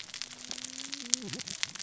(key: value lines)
label: biophony, cascading saw
recorder: SoundTrap 600 or HydroMoth